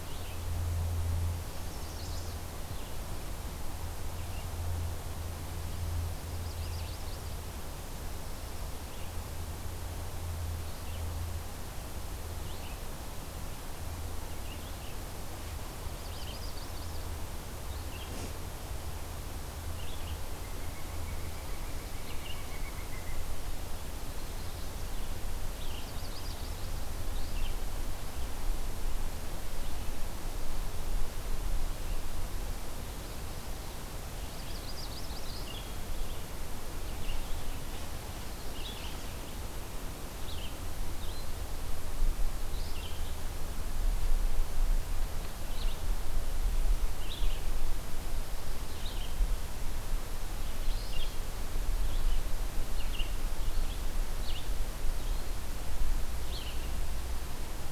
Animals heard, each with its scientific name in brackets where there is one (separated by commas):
Red-eyed Vireo (Vireo olivaceus), Pileated Woodpecker (Dryocopus pileatus), Magnolia Warbler (Setophaga magnolia), Chestnut-sided Warbler (Setophaga pensylvanica)